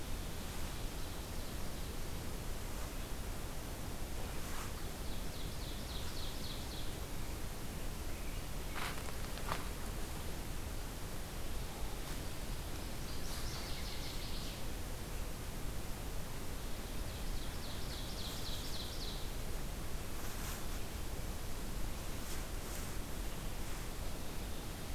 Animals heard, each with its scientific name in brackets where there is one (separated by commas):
Ovenbird (Seiurus aurocapilla), Northern Waterthrush (Parkesia noveboracensis)